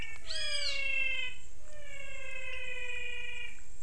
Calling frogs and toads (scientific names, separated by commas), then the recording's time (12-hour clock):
Leptodactylus podicipinus, Physalaemus albonotatus
5:45pm